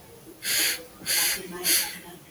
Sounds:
Sniff